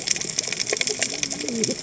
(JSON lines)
{"label": "biophony, cascading saw", "recorder": "HydroMoth"}